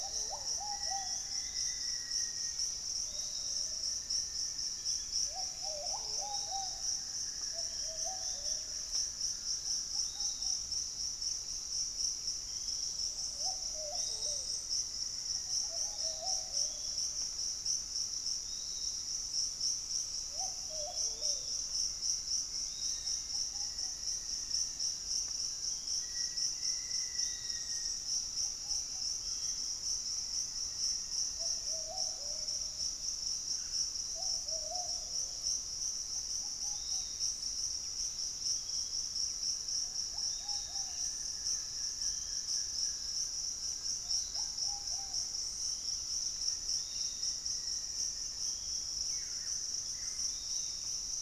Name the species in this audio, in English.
Black-faced Antthrush, Buff-throated Woodcreeper, Piratic Flycatcher, Ruddy Pigeon, Fasciated Antshrike, Pygmy Antwren, Ringed Woodpecker, unidentified bird